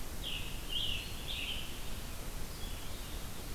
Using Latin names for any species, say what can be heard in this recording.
Piranga olivacea, Vireo olivaceus